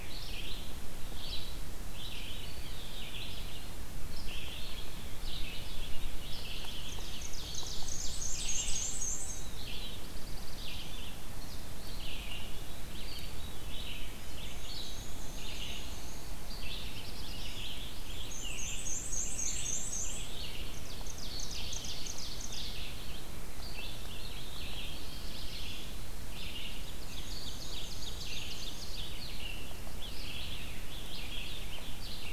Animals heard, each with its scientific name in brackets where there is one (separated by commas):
Black-throated Blue Warbler (Setophaga caerulescens), Ovenbird (Seiurus aurocapilla), Eastern Wood-Pewee (Contopus virens), Veery (Catharus fuscescens), Red-eyed Vireo (Vireo olivaceus), Black-and-white Warbler (Mniotilta varia), Scarlet Tanager (Piranga olivacea)